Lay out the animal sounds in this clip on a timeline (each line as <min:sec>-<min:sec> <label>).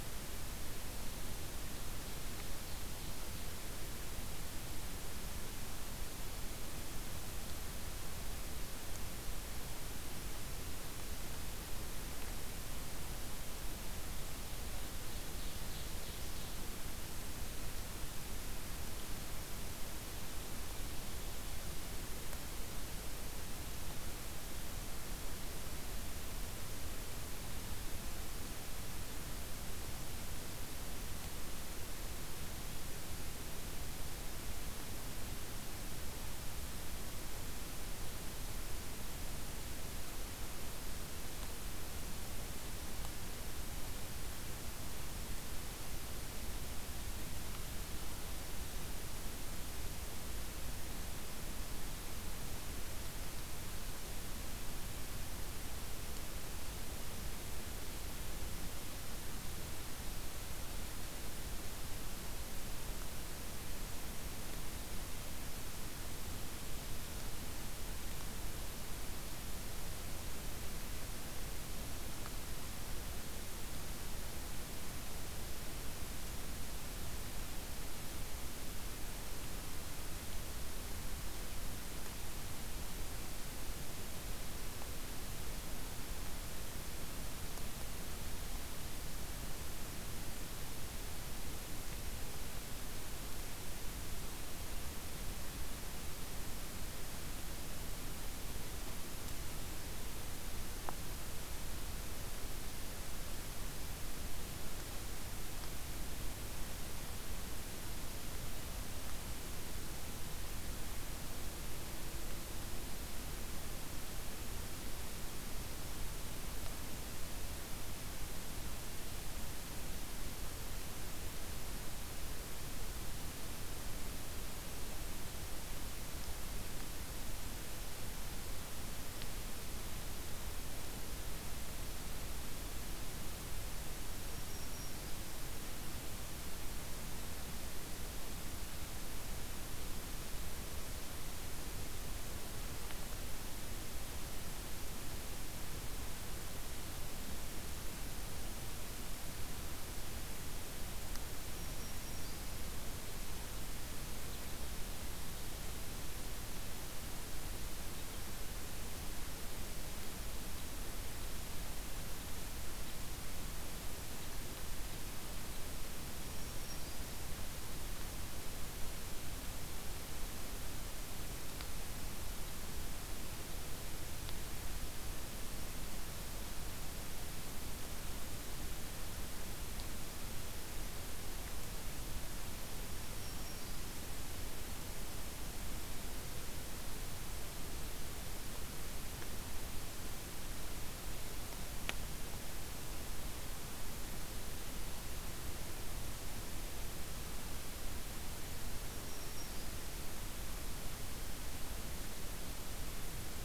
0:14.7-0:16.7 Ovenbird (Seiurus aurocapilla)
2:14.0-2:15.3 Black-throated Green Warbler (Setophaga virens)
2:31.5-2:32.5 Black-throated Green Warbler (Setophaga virens)
2:46.1-2:47.0 Black-throated Green Warbler (Setophaga virens)
3:02.8-3:04.0 Black-throated Green Warbler (Setophaga virens)
3:18.8-3:20.0 Black-throated Green Warbler (Setophaga virens)